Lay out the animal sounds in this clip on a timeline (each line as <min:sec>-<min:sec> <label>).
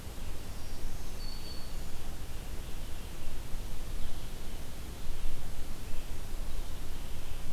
0:00.3-0:02.2 Black-throated Green Warbler (Setophaga virens)